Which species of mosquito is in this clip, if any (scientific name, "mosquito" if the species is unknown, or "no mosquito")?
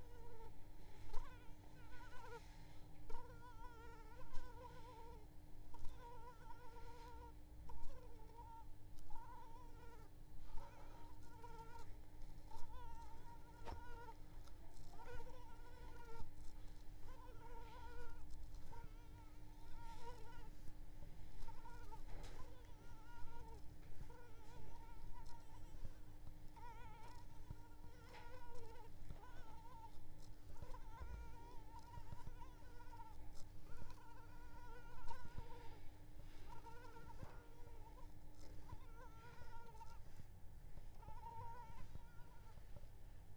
Culex pipiens complex